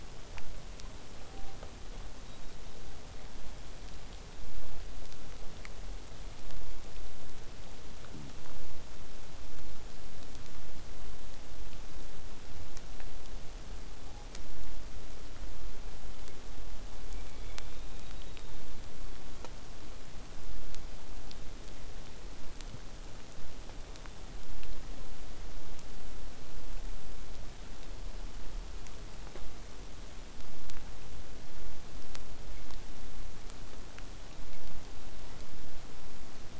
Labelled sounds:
17.0	19.4	killer whale, southern resident, 2.1 to 4.8 kHz
34.9	35.5	killer whale, southern resident, 0.23 to 4.9 kHz

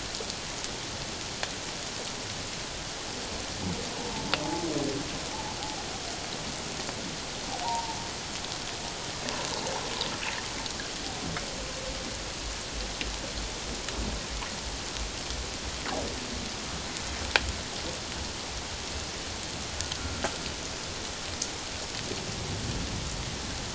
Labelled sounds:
4.0	4.3	humpback whale, 0.78 to 0.97 kHz
7.6	8.0	humpback whale, 0.78 to 1.0 kHz

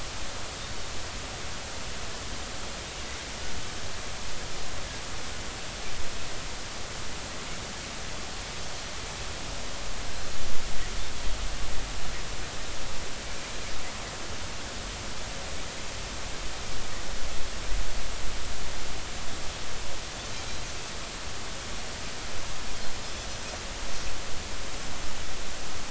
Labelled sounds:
20.3	20.7	Pacific white-sided dolphin, 3.9 to 4.2 kHz

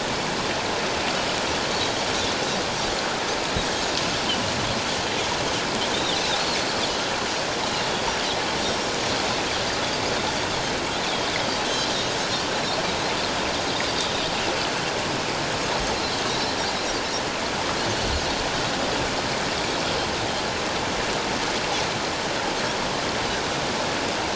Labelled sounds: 8.6	8.9	Pacific white-sided dolphin, 5.5 to 5.7 kHz
11.0	11.9	Pacific white-sided dolphin, 3.1 to 6.4 kHz
16.3	16.5	Pacific white-sided dolphin, 3.7 to 4.1 kHz

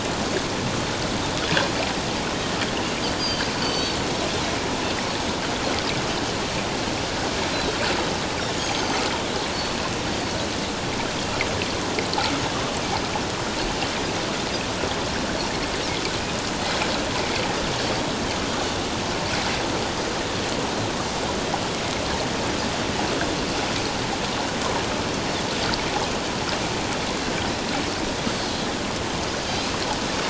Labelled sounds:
3.2	4.0	Pacific white-sided dolphin, 4.3 to 6.2 kHz
8.7	9.0	Pacific white-sided dolphin, 6.2 to 6.5 kHz

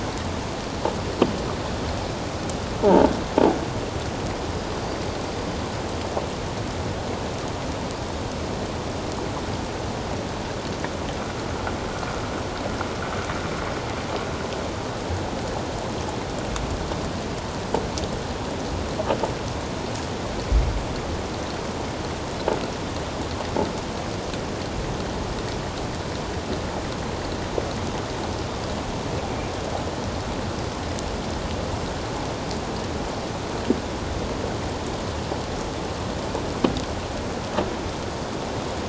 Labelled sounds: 2.8	3.1	croaking sound likely from a nearby submerged object, 0.78 to 1.0 kHz
4.5	4.8	killer whale, 4.9 to 5.0 kHz

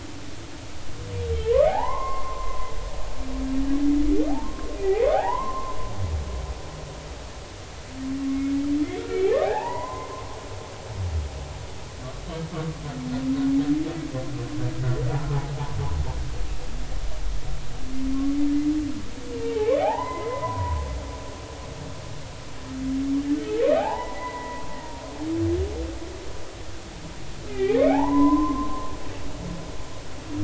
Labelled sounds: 1.7	2.7	humpback whale, 0.80 to 2.2 kHz
4.3	5.8	humpback whale, 0.80 to 2.5 kHz
8.3	8.5	humpback whale, 2.1 to 2.2 kHz
9.1	10.2	humpback whale, 0.80 to 2.5 kHz
19.8	20.8	humpback whale, 0.80 to 2.1 kHz
23.6	24.6	humpback whale, 0.80 to 2.6 kHz
27.5	28.9	humpback whale, 0.80 to 2.6 kHz

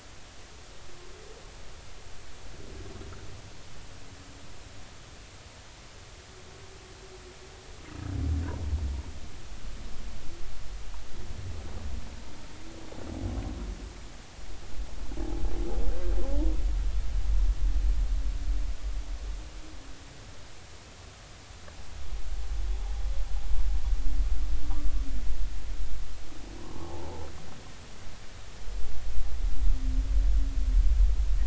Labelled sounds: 26.6	27.3	humpback whale, 0.80 to 1.2 kHz

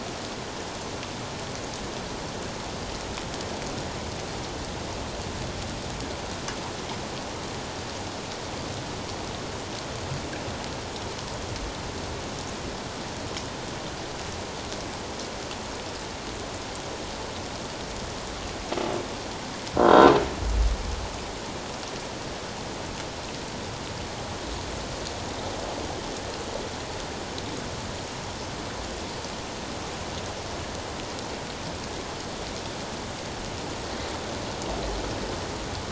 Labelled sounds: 19.9	20.1	croaking sound likely from a nearby submerged object, 3.7 to 3.8 kHz

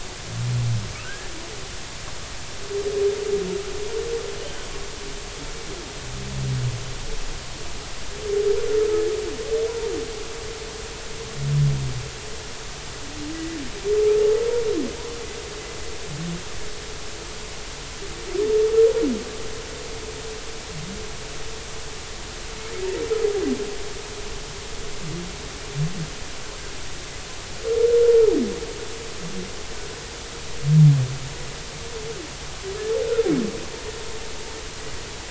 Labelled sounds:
1.0	1.3	humpback whale, 1.4 to 1.8 kHz

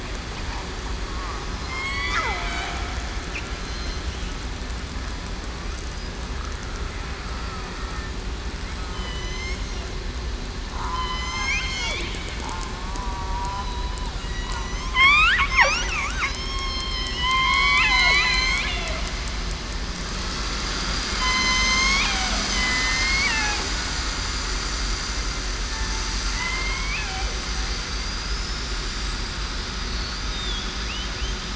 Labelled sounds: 1.7	2.8	killer whale, southern resident, 0.66 to 4.7 kHz
3.6	4.0	killer whale, southern resident, 4.1 to 4.2 kHz
8.9	9.6	killer whale, southern resident, 2.9 to 6.6 kHz
10.8	11.9	killer whale, southern resident, 1.1 to 6.6 kHz
13.0	13.7	killer whale, southern resident, 0.91 to 1.2 kHz
14.2	14.9	killer whale, southern resident, 1.9 to 6.6 kHz
15.9	18.6	killer whale, southern resident, 1.1 to 4.4 kHz
21.2	23.3	killer whale, southern resident, 0.63 to 6.7 kHz
26.3	27.0	killer whale, southern resident, 1.9 to 2.6 kHz
27.8	28.3	killer whale, southern resident, 4.6 to 8.0 kHz

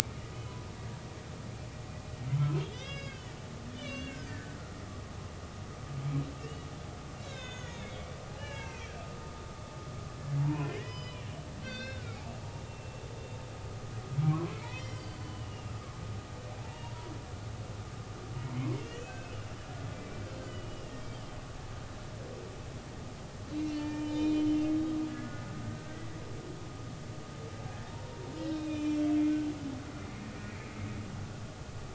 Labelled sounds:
2.6	4.5	humpback whale, 1.5 to 6.2 kHz
6.4	6.7	humpback whale, 2.7 to 3.0 kHz
7.2	8.1	humpback whale, 1.4 to 6.8 kHz
8.4	8.9	humpback whale, 0.83 to 4.1 kHz
10.4	11.3	humpback whale, 0.83 to 5.1 kHz
11.6	12.3	humpback whale, 1.2 to 4.8 kHz
12.7	13.0	humpback whale, 2.7 to 2.8 kHz
14.3	15.7	humpback whale, 0.93 to 5.8 kHz
16.7	17.1	humpback whale, 0.86 to 2.9 kHz
18.4	19.4	humpback whale, 1.4 to 3.1 kHz
20.0	20.9	humpback whale, 2.2 to 3.2 kHz
23.5	26.2	humpback whale, 0.86 to 7.1 kHz
28.4	29.1	humpback whale, 2.4 to 5.6 kHz

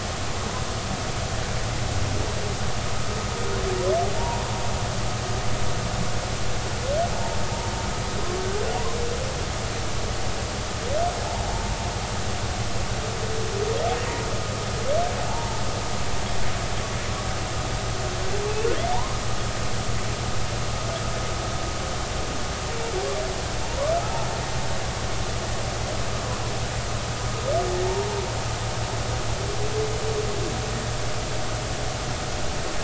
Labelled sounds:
4.2	4.4	humpback whale, 0.86 to 0.99 kHz
7.1	7.4	humpback whale, 0.86 to 0.96 kHz
15.3	15.6	humpback whale, 0.80 to 0.99 kHz
23.6	24.3	humpback whale, 0.80 to 1.2 kHz
27.8	28.2	humpback whale, 0.83 to 0.99 kHz

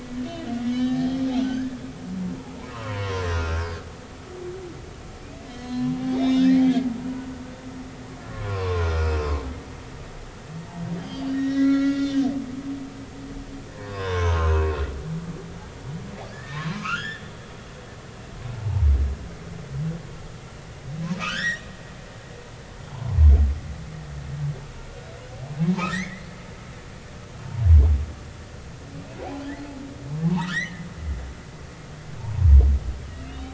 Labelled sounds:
0.3	1.8	humpback whale, 1.5 to 5.4 kHz
2.7	3.6	humpback whale, 0.90 to 6.1 kHz
5.5	7.3	humpback whale, 0.96 to 5.3 kHz
8.2	9.4	humpback whale, 0.90 to 5.3 kHz
11.0	12.3	humpback whale, 1.6 to 6.7 kHz
12.6	15.1	humpback whale, 0.90 to 3.8 kHz
16.3	17.3	humpback whale, 0.96 to 3.6 kHz
18.5	18.9	humpback whale, 0.80 to 0.99 kHz
21.2	21.7	humpback whale, 1.1 to 5.9 kHz
22.9	23.2	humpback whale, 0.80 to 1.1 kHz
25.9	26.3	humpback whale, 1.6 to 2.3 kHz
30.1	30.8	humpback whale, 0.80 to 2.3 kHz
33.0	33.5	humpback whale, 2.7 to 3.9 kHz

